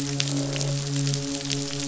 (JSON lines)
{"label": "biophony, midshipman", "recorder": "SoundTrap 500"}
{"label": "biophony, croak", "recorder": "SoundTrap 500"}